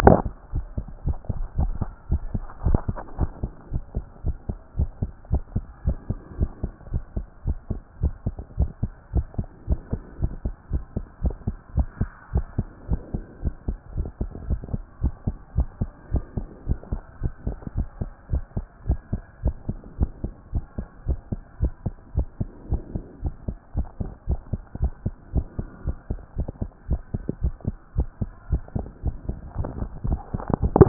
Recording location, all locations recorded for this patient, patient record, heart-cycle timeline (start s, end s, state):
pulmonary valve (PV)
aortic valve (AV)+pulmonary valve (PV)+tricuspid valve (TV)+mitral valve (MV)
#Age: Adolescent
#Sex: Male
#Height: 143.0 cm
#Weight: 40.4 kg
#Pregnancy status: False
#Murmur: Absent
#Murmur locations: nan
#Most audible location: nan
#Systolic murmur timing: nan
#Systolic murmur shape: nan
#Systolic murmur grading: nan
#Systolic murmur pitch: nan
#Systolic murmur quality: nan
#Diastolic murmur timing: nan
#Diastolic murmur shape: nan
#Diastolic murmur grading: nan
#Diastolic murmur pitch: nan
#Diastolic murmur quality: nan
#Outcome: Normal
#Campaign: 2014 screening campaign
0.00	3.18	unannotated
3.18	3.30	S1
3.30	3.42	systole
3.42	3.52	S2
3.52	3.72	diastole
3.72	3.82	S1
3.82	3.96	systole
3.96	4.04	S2
4.04	4.24	diastole
4.24	4.36	S1
4.36	4.48	systole
4.48	4.58	S2
4.58	4.78	diastole
4.78	4.90	S1
4.90	5.02	systole
5.02	5.10	S2
5.10	5.30	diastole
5.30	5.42	S1
5.42	5.54	systole
5.54	5.64	S2
5.64	5.86	diastole
5.86	5.98	S1
5.98	6.08	systole
6.08	6.18	S2
6.18	6.38	diastole
6.38	6.50	S1
6.50	6.62	systole
6.62	6.72	S2
6.72	6.92	diastole
6.92	7.02	S1
7.02	7.16	systole
7.16	7.26	S2
7.26	7.46	diastole
7.46	7.58	S1
7.58	7.70	systole
7.70	7.80	S2
7.80	8.02	diastole
8.02	8.14	S1
8.14	8.26	systole
8.26	8.34	S2
8.34	8.58	diastole
8.58	8.70	S1
8.70	8.82	systole
8.82	8.92	S2
8.92	9.14	diastole
9.14	9.26	S1
9.26	9.38	systole
9.38	9.46	S2
9.46	9.68	diastole
9.68	9.80	S1
9.80	9.92	systole
9.92	10.02	S2
10.02	10.20	diastole
10.20	10.32	S1
10.32	10.44	systole
10.44	10.54	S2
10.54	10.72	diastole
10.72	10.82	S1
10.82	10.96	systole
10.96	11.04	S2
11.04	11.22	diastole
11.22	11.34	S1
11.34	11.46	systole
11.46	11.56	S2
11.56	11.76	diastole
11.76	11.88	S1
11.88	12.00	systole
12.00	12.10	S2
12.10	12.34	diastole
12.34	12.46	S1
12.46	12.58	systole
12.58	12.66	S2
12.66	12.90	diastole
12.90	13.00	S1
13.00	13.14	systole
13.14	13.24	S2
13.24	13.42	diastole
13.42	13.54	S1
13.54	13.68	systole
13.68	13.76	S2
13.76	13.96	diastole
13.96	14.08	S1
14.08	14.20	systole
14.20	14.30	S2
14.30	14.48	diastole
14.48	14.60	S1
14.60	14.72	systole
14.72	14.82	S2
14.82	15.02	diastole
15.02	15.14	S1
15.14	15.26	systole
15.26	15.36	S2
15.36	15.56	diastole
15.56	15.68	S1
15.68	15.80	systole
15.80	15.90	S2
15.90	16.12	diastole
16.12	16.24	S1
16.24	16.36	systole
16.36	16.46	S2
16.46	16.66	diastole
16.66	16.78	S1
16.78	16.92	systole
16.92	17.00	S2
17.00	17.22	diastole
17.22	17.32	S1
17.32	17.46	systole
17.46	17.56	S2
17.56	17.76	diastole
17.76	17.88	S1
17.88	18.00	systole
18.00	18.10	S2
18.10	18.32	diastole
18.32	18.44	S1
18.44	18.56	systole
18.56	18.66	S2
18.66	18.88	diastole
18.88	19.00	S1
19.00	19.12	systole
19.12	19.22	S2
19.22	19.44	diastole
19.44	19.56	S1
19.56	19.68	systole
19.68	19.78	S2
19.78	19.98	diastole
19.98	20.10	S1
20.10	20.24	systole
20.24	20.32	S2
20.32	20.52	diastole
20.52	20.64	S1
20.64	20.78	systole
20.78	20.86	S2
20.86	21.06	diastole
21.06	21.18	S1
21.18	21.32	systole
21.32	21.40	S2
21.40	21.60	diastole
21.60	21.72	S1
21.72	21.84	systole
21.84	21.94	S2
21.94	22.16	diastole
22.16	22.28	S1
22.28	22.40	systole
22.40	22.48	S2
22.48	22.70	diastole
22.70	22.82	S1
22.82	22.94	systole
22.94	23.04	S2
23.04	23.22	diastole
23.22	23.34	S1
23.34	23.48	systole
23.48	23.56	S2
23.56	23.76	diastole
23.76	23.86	S1
23.86	24.00	systole
24.00	24.10	S2
24.10	24.28	diastole
24.28	24.40	S1
24.40	24.52	systole
24.52	24.62	S2
24.62	24.80	diastole
24.80	24.92	S1
24.92	25.04	systole
25.04	25.14	S2
25.14	25.34	diastole
25.34	25.46	S1
25.46	25.58	systole
25.58	25.68	S2
25.68	25.86	diastole
25.86	25.96	S1
25.96	26.10	systole
26.10	26.20	S2
26.20	26.36	diastole
26.36	26.48	S1
26.48	26.60	systole
26.60	26.70	S2
26.70	26.88	diastole
26.88	27.00	S1
27.00	27.14	systole
27.14	27.22	S2
27.22	27.42	diastole
27.42	27.54	S1
27.54	27.66	systole
27.66	27.76	S2
27.76	27.96	diastole
27.96	28.08	S1
28.08	28.20	systole
28.20	28.30	S2
28.30	28.50	diastole
28.50	28.62	S1
28.62	28.76	systole
28.76	28.86	S2
28.86	29.04	diastole
29.04	29.16	S1
29.16	29.28	systole
29.28	29.38	S2
29.38	29.58	diastole
29.58	29.68	S1
29.68	29.80	systole
29.80	29.88	S2
29.88	30.06	diastole
30.06	30.88	unannotated